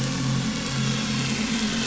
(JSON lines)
{"label": "anthrophony, boat engine", "recorder": "SoundTrap 500"}